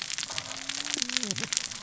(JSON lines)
{"label": "biophony, cascading saw", "recorder": "SoundTrap 600 or HydroMoth"}